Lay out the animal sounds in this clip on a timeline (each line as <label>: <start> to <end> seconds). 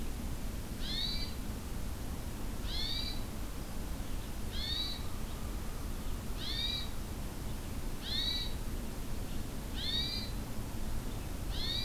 Red-eyed Vireo (Vireo olivaceus): 0.0 to 11.8 seconds
Hermit Thrush (Catharus guttatus): 0.8 to 1.4 seconds
Hermit Thrush (Catharus guttatus): 2.6 to 3.2 seconds
Hermit Thrush (Catharus guttatus): 4.5 to 5.1 seconds
American Crow (Corvus brachyrhynchos): 4.7 to 6.0 seconds
Hermit Thrush (Catharus guttatus): 6.4 to 6.9 seconds
Hermit Thrush (Catharus guttatus): 8.0 to 8.5 seconds
Hermit Thrush (Catharus guttatus): 9.7 to 10.3 seconds